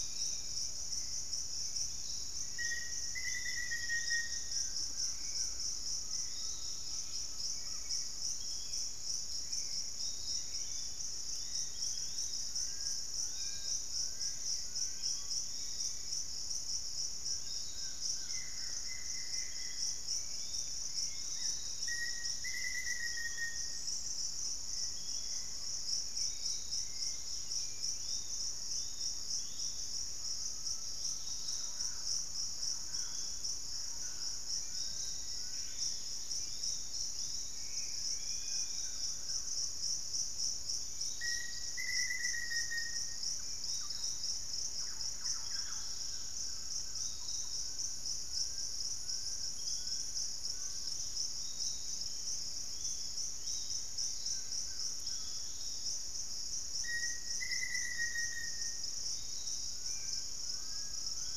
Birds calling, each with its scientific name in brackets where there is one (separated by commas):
Spot-winged Antshrike (Pygiptila stellaris), Black-spotted Bare-eye (Phlegopsis nigromaculata), Hauxwell's Thrush (Turdus hauxwelli), Buff-throated Woodcreeper (Xiphorhynchus guttatus), Collared Trogon (Trogon collaris), Yellow-margined Flycatcher (Tolmomyias assimilis), Pygmy Antwren (Myrmotherula brachyura), Black-faced Antthrush (Formicarius analis), Dusky-capped Flycatcher (Myiarchus tuberculifer), Barred Forest-Falcon (Micrastur ruficollis), Thrush-like Wren (Campylorhynchus turdinus), Fasciated Antshrike (Cymbilaimus lineatus), Undulated Tinamou (Crypturellus undulatus), unidentified bird, Piratic Flycatcher (Legatus leucophaius), Dusky-capped Greenlet (Pachysylvia hypoxantha)